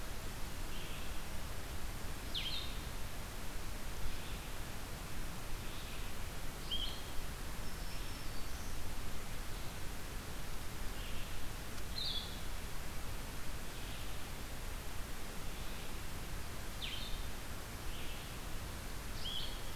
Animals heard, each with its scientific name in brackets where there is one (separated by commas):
Red-eyed Vireo (Vireo olivaceus), Black-throated Green Warbler (Setophaga virens), Blue-headed Vireo (Vireo solitarius)